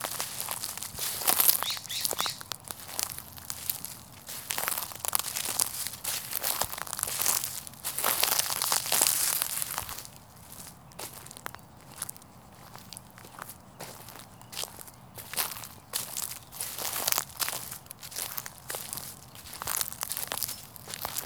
Are they playing hockey?
no